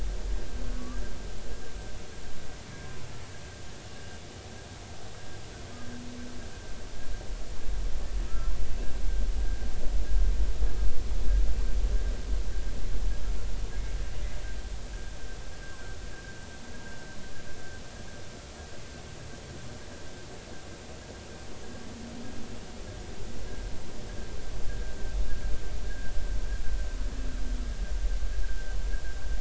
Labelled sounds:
8.3	8.5	humpback whale, 1.2 to 1.4 kHz
24.7	24.9	humpback whale, 1.5 to 1.7 kHz
25.9	26.1	humpback whale, 1.5 to 1.7 kHz
28.4	28.8	humpback whale, 1.5 to 1.7 kHz

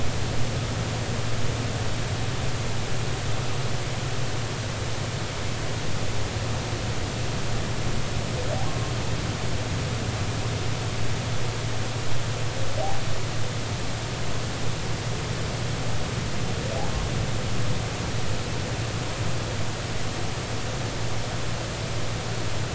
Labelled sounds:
8.7	8.9	humpback whale, 1.0 to 1.1 kHz

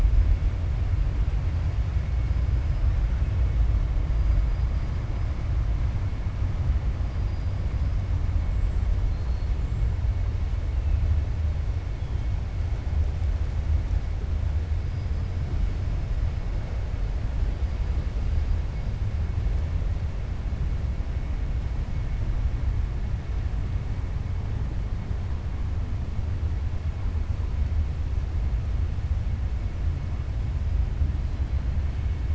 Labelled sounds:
8.4	8.8	killer whale, 7.1 to 8.0 kHz
9.5	9.9	killer whale, 7.1 to 7.6 kHz

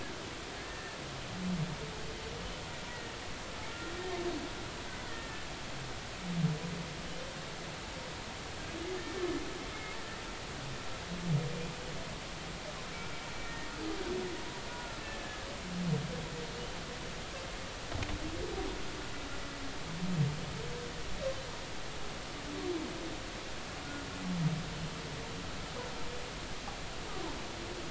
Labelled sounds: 0.6	1.0	humpback whale, 1.6 to 1.9 kHz
2.9	3.1	humpback whale, 1.8 to 2.0 kHz
5.1	5.4	humpback whale, 1.7 to 2.0 kHz
9.0	9.2	humpback whale, 1.7 to 1.9 kHz
13.4	13.7	humpback whale, 1.8 to 1.9 kHz
14.7	15.5	humpback whale, 1.3 to 1.8 kHz

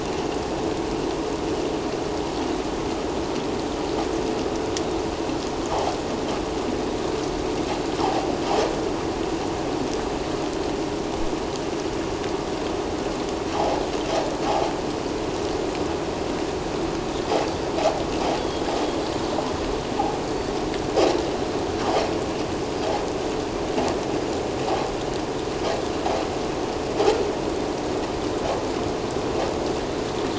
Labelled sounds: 8.0	8.3	vessel noise, 0.78 to 1.0 kHz
13.6	13.8	vessel noise, 0.78 to 0.97 kHz
18.4	18.6	vessel noise, 3.2 to 3.5 kHz
20.2	20.5	vessel noise, 4.4 to 4.7 kHz

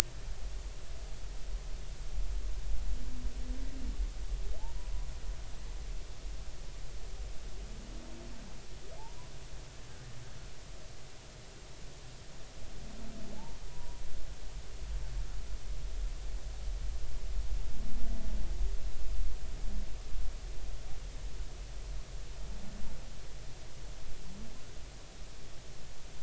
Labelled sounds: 13.7	14.0	humpback whale, 0.93 to 1.0 kHz

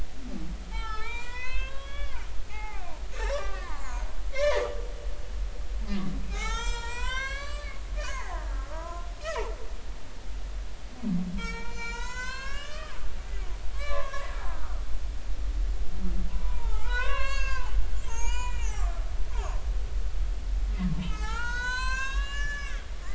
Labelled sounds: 0.7	2.9	humpback whale, 0.80 to 7.4 kHz
3.1	4.7	humpback whale, 0.80 to 7.3 kHz
6.3	9.1	humpback whale, 0.80 to 8.0 kHz
11.4	13.0	humpback whale, 0.90 to 8.0 kHz
13.7	14.8	humpback whale, 0.96 to 4.1 kHz
16.3	19.6	humpback whale, 0.80 to 7.6 kHz
20.9	22.8	humpback whale, 0.80 to 8.0 kHz

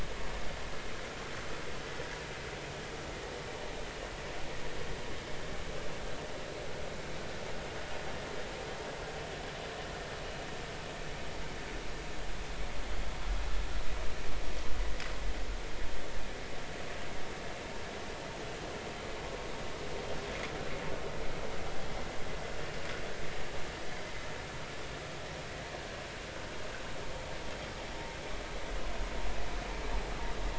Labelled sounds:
21.8	22.0	vessel noise, 3.2 to 3.4 kHz

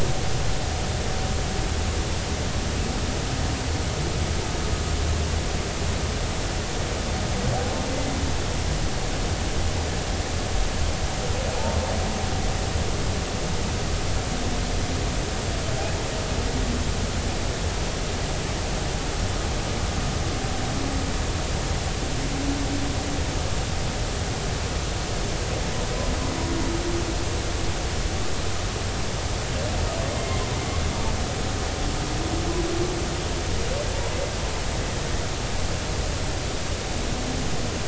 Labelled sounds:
7.9	8.2	humpback whale, 2.0 to 2.1 kHz
30.2	30.4	humpback whale, 2.0 to 2.2 kHz

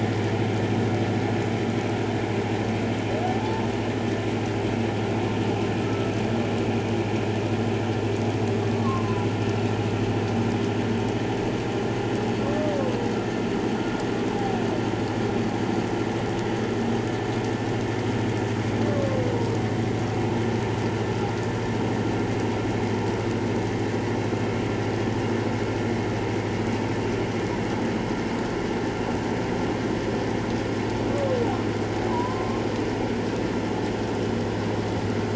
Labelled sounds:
3.4	3.7	humpback whale, 0.81 to 0.94 kHz
5.8	6.1	humpback whale, 1.2 to 1.4 kHz
8.5	9.3	humpback whale, 0.94 to 1.2 kHz
18.9	19.2	humpback whale, 1.0 to 1.2 kHz
32.1	32.6	humpback whale, 0.91 to 1.1 kHz

